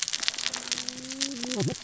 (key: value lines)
label: biophony, cascading saw
recorder: SoundTrap 600 or HydroMoth